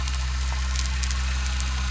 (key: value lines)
label: anthrophony, boat engine
recorder: SoundTrap 300